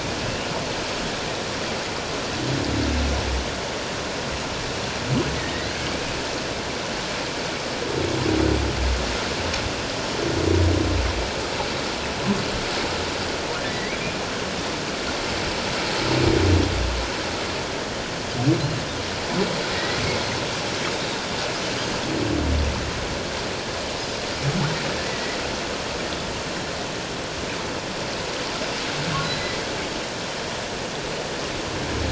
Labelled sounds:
0.2	0.5	humpback whale, 2.6 to 2.9 kHz
5.4	5.7	humpback whale, 1.7 to 2.1 kHz
13.7	14.0	humpback whale, 1.9 to 2.4 kHz
19.7	20.0	humpback whale, 1.8 to 2.1 kHz
25.1	25.4	humpback whale, 1.9 to 2.1 kHz
29.2	29.5	humpback whale, 3.9 to 4.1 kHz

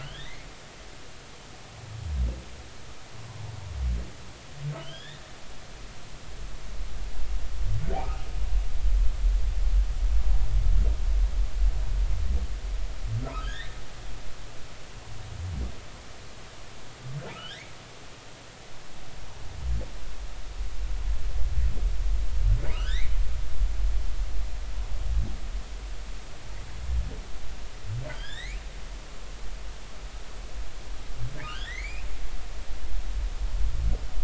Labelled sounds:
0.0	0.5	humpback whale, 1.4 to 3.9 kHz
4.8	5.2	humpback whale, 1.5 to 3.8 kHz
13.3	13.8	humpback whale, 1.2 to 4.0 kHz
17.3	17.7	humpback whale, 1.2 to 2.3 kHz
22.7	23.2	humpback whale, 1.2 to 4.2 kHz
28.1	28.6	humpback whale, 1.4 to 5.4 kHz
31.4	32.1	humpback whale, 1.2 to 3.6 kHz

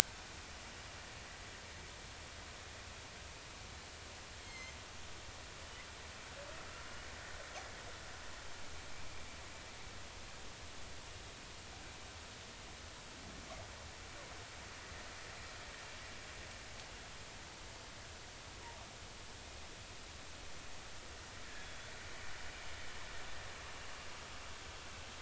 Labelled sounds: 4.4	4.8	killer whale, northern resident, G clan, 2.0 to 6.6 kHz
21.6	21.9	killer whale, northern resident, G clan, 3.3 to 3.6 kHz

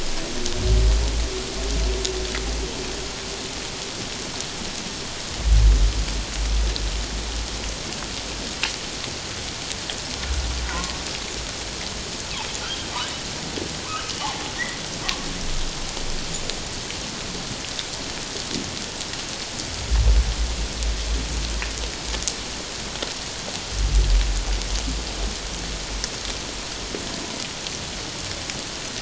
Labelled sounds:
10.7	10.9	humpback whale, 0.94 to 1.1 kHz
13.8	14.4	humpback whale, 0.78 to 1.6 kHz

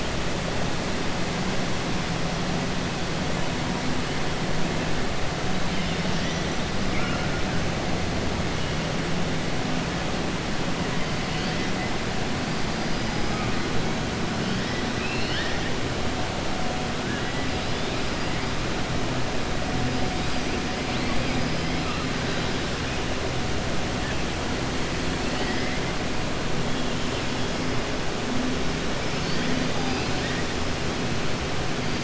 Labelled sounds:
14.9	15.7	killer whale, 1.6 to 5.2 kHz
25.2	25.8	killer whale, 1.8 to 5.3 kHz

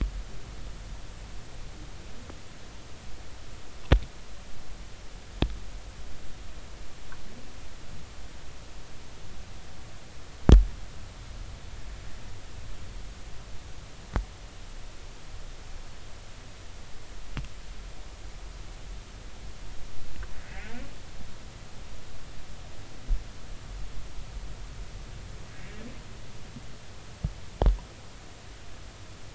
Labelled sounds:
20.5	20.7	humpback whale, 1.6 to 2.9 kHz

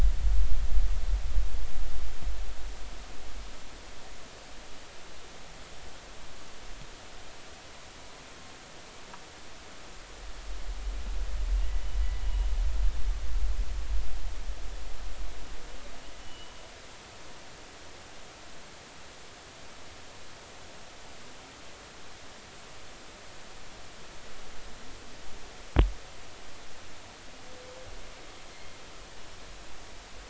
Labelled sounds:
12.2	12.5	humpback whale, 2.8 to 3.0 kHz
16.2	16.5	humpback whale, 2.9 to 3.0 kHz

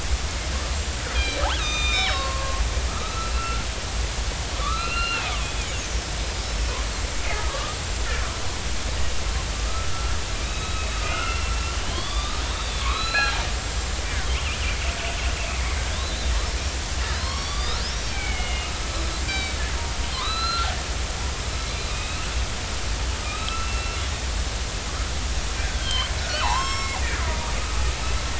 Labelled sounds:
0.7	3.7	killer whale, northern resident, 0.99 to 7.5 kHz
4.6	5.3	killer whale, northern resident, 0.99 to 4.2 kHz
6.4	6.7	killer whale, northern resident, 5.2 to 5.4 kHz
7.3	7.8	killer whale, northern resident, 1.0 to 1.3 kHz
10.4	11.4	killer whale, northern resident, 1.2 to 3.9 kHz
11.8	13.4	killer whale, northern resident, 0.96 to 4.8 kHz
13.7	14.0	killer whale, northern resident, 7.2 to 7.5 kHz
15.5	16.3	killer whale, northern resident, 2.0 to 4.1 kHz
17.1	17.8	killer whale, northern resident, 0.93 to 5.9 kHz
18.1	18.7	killer whale, northern resident, 2.1 to 3.0 kHz
19.2	19.6	killer whale, northern resident, 2.2 to 7.5 kHz
20.1	20.7	killer whale, northern resident, 0.96 to 4.2 kHz
21.5	22.3	killer whale, northern resident, 2.1 to 4.1 kHz
23.2	24.0	killer whale, northern resident, 1.2 to 4.1 kHz
25.8	27.0	killer whale, northern resident, 0.80 to 7.6 kHz

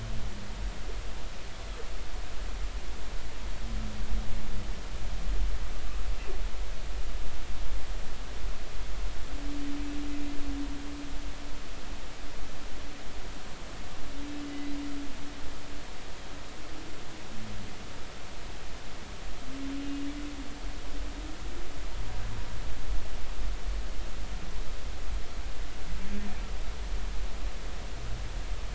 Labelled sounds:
14.5	14.7	humpback whale, 1.95 to 2.05 kHz

